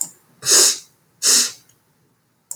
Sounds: Sniff